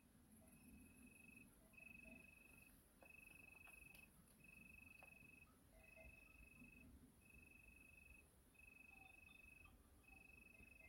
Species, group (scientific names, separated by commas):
Oecanthus pellucens, Orthoptera